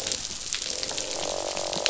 {"label": "biophony, croak", "recorder": "SoundTrap 500"}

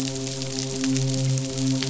{"label": "biophony, midshipman", "recorder": "SoundTrap 500"}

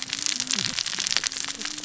{"label": "biophony, cascading saw", "recorder": "SoundTrap 600 or HydroMoth"}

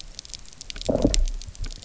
{"label": "biophony, low growl", "recorder": "SoundTrap 300"}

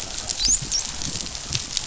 {"label": "biophony, dolphin", "recorder": "SoundTrap 500"}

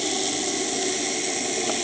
{"label": "anthrophony, boat engine", "recorder": "HydroMoth"}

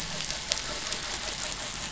{"label": "anthrophony, boat engine", "recorder": "SoundTrap 500"}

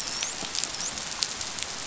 {"label": "biophony, dolphin", "recorder": "SoundTrap 500"}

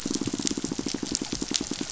{"label": "biophony, pulse", "recorder": "SoundTrap 500"}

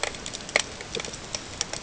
{"label": "ambient", "recorder": "HydroMoth"}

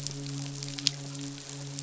{"label": "biophony, midshipman", "recorder": "SoundTrap 500"}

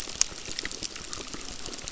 {"label": "biophony, crackle", "recorder": "SoundTrap 600"}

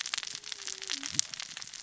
{"label": "biophony, cascading saw", "recorder": "SoundTrap 600 or HydroMoth"}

